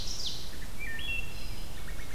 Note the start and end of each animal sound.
0.0s-0.5s: Ovenbird (Seiurus aurocapilla)
0.3s-2.1s: Wood Thrush (Hylocichla mustelina)

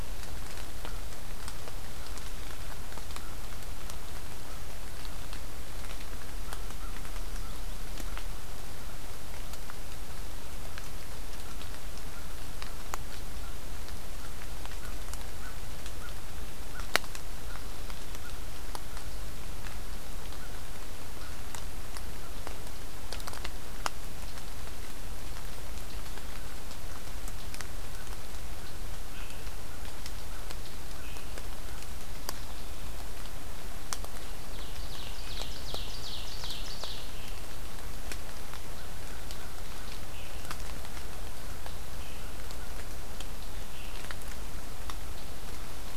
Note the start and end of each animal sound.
6.3s-43.0s: American Crow (Corvus brachyrhynchos)
29.0s-46.0s: Scarlet Tanager (Piranga olivacea)
34.1s-37.2s: Ovenbird (Seiurus aurocapilla)

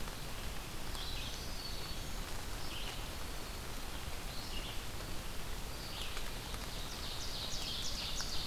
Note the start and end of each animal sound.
0.0s-8.5s: Red-eyed Vireo (Vireo olivaceus)
0.7s-2.2s: Black-throated Green Warbler (Setophaga virens)
2.7s-3.8s: Black-throated Green Warbler (Setophaga virens)
6.6s-8.5s: Ovenbird (Seiurus aurocapilla)

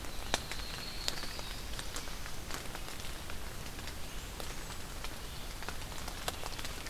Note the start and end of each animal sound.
0.0s-1.5s: Yellow-rumped Warbler (Setophaga coronata)
3.7s-4.9s: Blackburnian Warbler (Setophaga fusca)

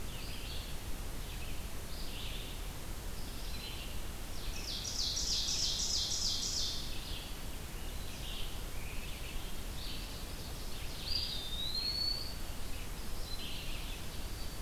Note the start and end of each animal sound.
0.0s-3.9s: Red-eyed Vireo (Vireo olivaceus)
4.2s-6.9s: Ovenbird (Seiurus aurocapilla)
6.7s-14.2s: Red-eyed Vireo (Vireo olivaceus)
10.8s-12.6s: Eastern Wood-Pewee (Contopus virens)

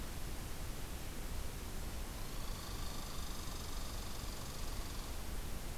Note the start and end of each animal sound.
2.1s-5.2s: Red Squirrel (Tamiasciurus hudsonicus)

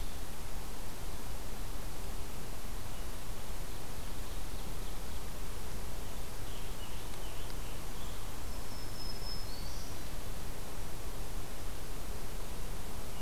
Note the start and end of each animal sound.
3.4s-5.4s: Ovenbird (Seiurus aurocapilla)
5.9s-8.2s: American Robin (Turdus migratorius)
8.3s-10.0s: Black-throated Green Warbler (Setophaga virens)

